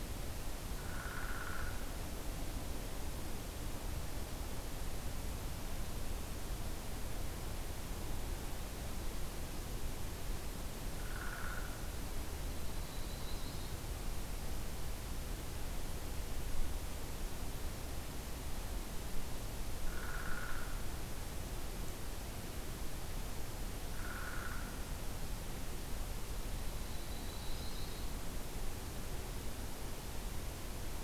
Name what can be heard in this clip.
Downy Woodpecker, Yellow-rumped Warbler